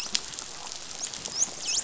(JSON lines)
{"label": "biophony, dolphin", "recorder": "SoundTrap 500"}